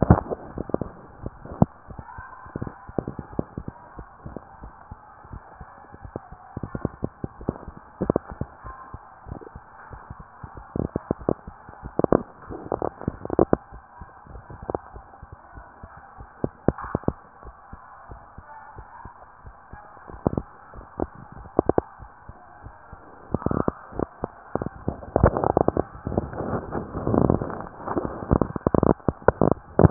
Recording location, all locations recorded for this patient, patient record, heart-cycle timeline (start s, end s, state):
tricuspid valve (TV)
aortic valve (AV)+pulmonary valve (PV)+tricuspid valve (TV)
#Age: Adolescent
#Sex: Female
#Height: 161.0 cm
#Weight: 69.1 kg
#Pregnancy status: False
#Murmur: Absent
#Murmur locations: nan
#Most audible location: nan
#Systolic murmur timing: nan
#Systolic murmur shape: nan
#Systolic murmur grading: nan
#Systolic murmur pitch: nan
#Systolic murmur quality: nan
#Diastolic murmur timing: nan
#Diastolic murmur shape: nan
#Diastolic murmur grading: nan
#Diastolic murmur pitch: nan
#Diastolic murmur quality: nan
#Outcome: Abnormal
#Campaign: 2015 screening campaign
0.00	3.93	unannotated
3.93	4.07	S1
4.07	4.23	systole
4.23	4.36	S2
4.36	4.59	diastole
4.59	4.72	S1
4.72	4.89	systole
4.89	4.98	S2
4.98	5.30	diastole
5.30	5.40	S1
5.40	5.56	systole
5.56	5.69	S2
5.69	6.00	diastole
6.00	15.41	unannotated
15.41	15.62	S1
15.62	15.79	systole
15.79	15.90	S2
15.90	16.16	diastole
16.16	17.39	unannotated
17.39	17.53	S1
17.53	17.69	systole
17.69	17.78	S2
17.78	18.06	diastole
18.06	18.16	S1
18.16	18.33	systole
18.33	18.46	S2
18.46	18.77	diastole
18.77	29.90	unannotated